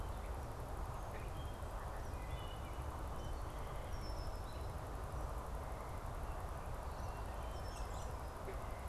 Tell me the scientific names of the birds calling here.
Hylocichla mustelina, Agelaius phoeniceus, Turdus migratorius